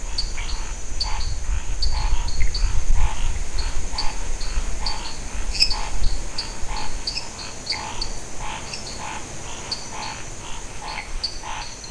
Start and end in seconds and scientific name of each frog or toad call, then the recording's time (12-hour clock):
0.0	11.9	Dendropsophus nanus
0.0	11.9	Scinax fuscovarius
0.3	0.5	Pithecopus azureus
5.4	6.0	Dendropsophus minutus
7.7	7.8	Pithecopus azureus
8:15pm